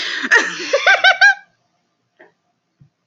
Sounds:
Laughter